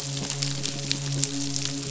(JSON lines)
{"label": "biophony, midshipman", "recorder": "SoundTrap 500"}